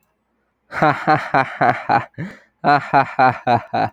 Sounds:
Laughter